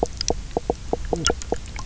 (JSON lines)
{"label": "biophony, knock croak", "recorder": "SoundTrap 300"}